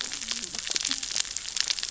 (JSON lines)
{"label": "biophony, cascading saw", "recorder": "SoundTrap 600 or HydroMoth"}